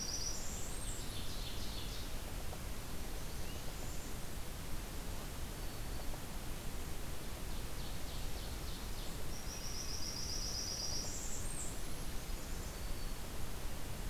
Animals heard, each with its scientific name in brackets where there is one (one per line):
Ovenbird (Seiurus aurocapilla)
Blackburnian Warbler (Setophaga fusca)
Black-throated Green Warbler (Setophaga virens)